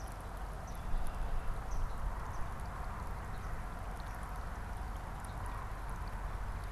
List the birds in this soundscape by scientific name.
Melospiza georgiana